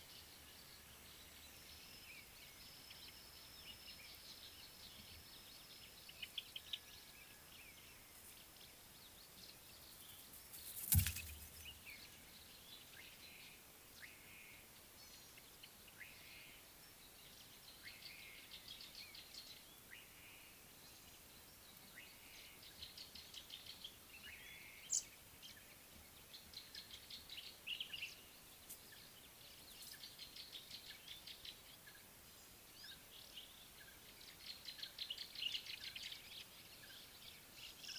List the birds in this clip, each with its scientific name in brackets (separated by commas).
Slate-colored Boubou (Laniarius funebris), Common Bulbul (Pycnonotus barbatus), African Thrush (Turdus pelios), Gray-backed Camaroptera (Camaroptera brevicaudata)